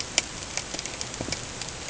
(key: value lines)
label: ambient
recorder: HydroMoth